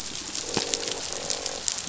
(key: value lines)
label: biophony
recorder: SoundTrap 500

label: biophony, croak
recorder: SoundTrap 500